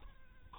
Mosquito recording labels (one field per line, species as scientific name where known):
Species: mosquito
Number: one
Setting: cup